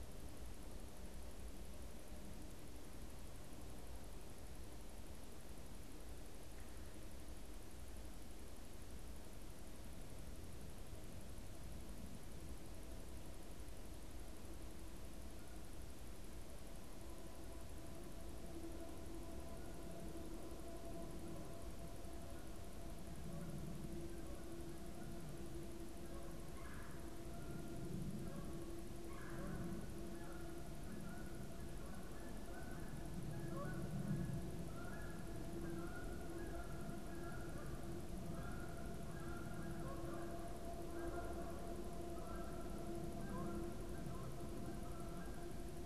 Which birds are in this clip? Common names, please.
Canada Goose, Red-bellied Woodpecker